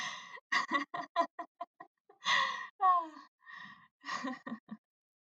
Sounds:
Laughter